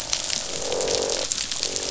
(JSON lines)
{"label": "biophony, croak", "recorder": "SoundTrap 500"}